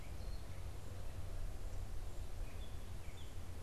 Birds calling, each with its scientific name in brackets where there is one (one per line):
Gray Catbird (Dumetella carolinensis)